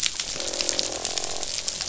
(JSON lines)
{"label": "biophony, croak", "recorder": "SoundTrap 500"}